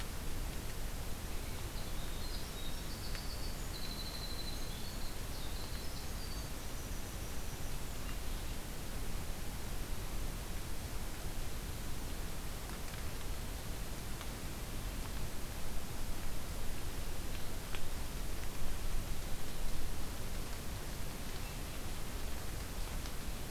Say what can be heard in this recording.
Winter Wren